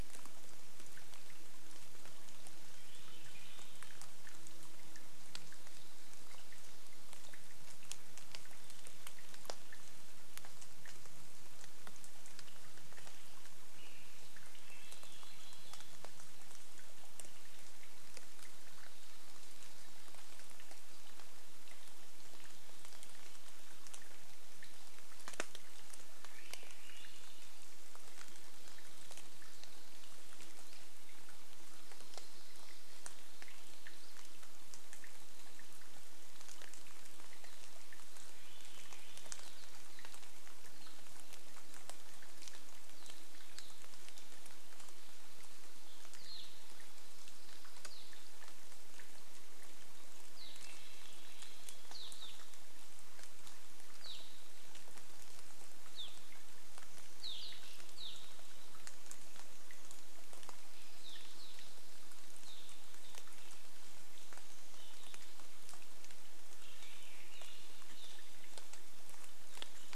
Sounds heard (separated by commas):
Swainson's Thrush song, rain, Evening Grosbeak call, unidentified bird chip note, insect buzz